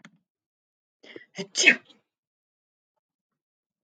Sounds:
Sneeze